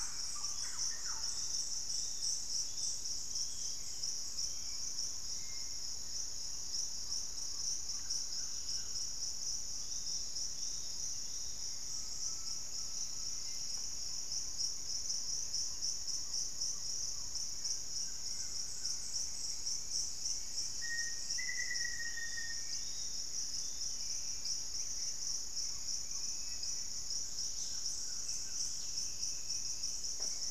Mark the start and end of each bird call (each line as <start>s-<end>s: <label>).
0.0s-0.6s: Hauxwell's Thrush (Turdus hauxwelli)
0.0s-1.6s: Thrush-like Wren (Campylorhynchus turdinus)
0.5s-3.1s: Yellow-margined Flycatcher (Tolmomyias assimilis)
3.3s-5.9s: unidentified bird
5.7s-7.4s: Plain-winged Antshrike (Thamnophilus schistaceus)
7.7s-9.2s: Collared Trogon (Trogon collaris)
9.6s-12.0s: Yellow-margined Flycatcher (Tolmomyias assimilis)
11.5s-14.5s: unidentified bird
11.8s-12.9s: Golden-crowned Spadebill (Platyrinchus coronatus)
11.9s-13.5s: Undulated Tinamou (Crypturellus undulatus)
15.9s-17.9s: Plain-winged Antshrike (Thamnophilus schistaceus)
17.9s-19.2s: Collared Trogon (Trogon collaris)
18.5s-21.9s: Gray Antwren (Myrmotherula menetriesii)
20.6s-23.0s: Black-faced Antthrush (Formicarius analis)
21.7s-24.1s: Yellow-margined Flycatcher (Tolmomyias assimilis)
23.5s-24.7s: unidentified bird
24.7s-26.5s: Black-tailed Trogon (Trogon melanurus)
26.0s-27.0s: Dusky-capped Flycatcher (Myiarchus tuberculifer)
27.1s-28.2s: Cinereous Tinamou (Crypturellus cinereus)
27.3s-28.8s: Collared Trogon (Trogon collaris)
28.1s-30.1s: Black-capped Becard (Pachyramphus marginatus)